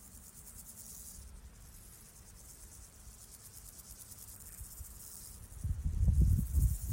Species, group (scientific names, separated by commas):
Pseudochorthippus parallelus, Orthoptera